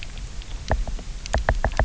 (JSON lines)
{"label": "biophony, knock", "recorder": "SoundTrap 300"}